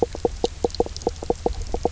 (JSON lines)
{"label": "biophony, knock croak", "recorder": "SoundTrap 300"}